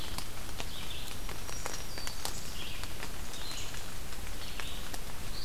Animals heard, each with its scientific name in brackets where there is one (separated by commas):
Black-throated Green Warbler (Setophaga virens), Red-eyed Vireo (Vireo olivaceus)